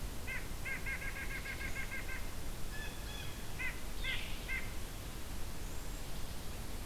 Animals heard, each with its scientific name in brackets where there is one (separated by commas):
White-breasted Nuthatch (Sitta carolinensis), Veery (Catharus fuscescens), Blue Jay (Cyanocitta cristata)